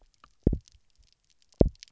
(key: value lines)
label: biophony, double pulse
recorder: SoundTrap 300